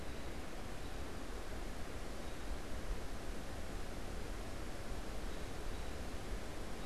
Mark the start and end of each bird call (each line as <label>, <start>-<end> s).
American Robin (Turdus migratorius), 0.0-6.9 s